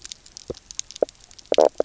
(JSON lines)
{"label": "biophony, knock croak", "recorder": "SoundTrap 300"}